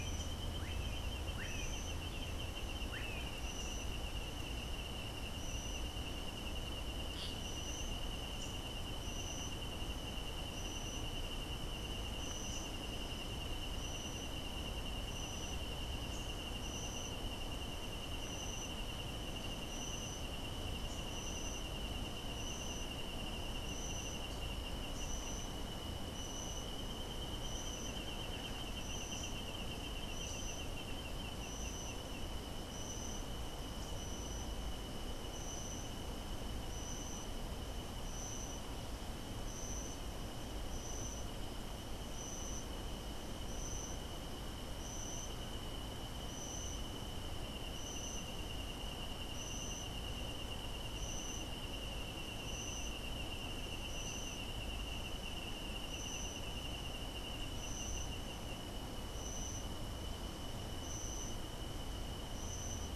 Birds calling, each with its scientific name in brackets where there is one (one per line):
Melodious Blackbird (Dives dives)
Masked Tityra (Tityra semifasciata)